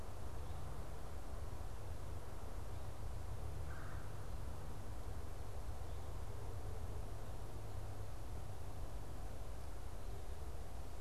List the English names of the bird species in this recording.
Red-bellied Woodpecker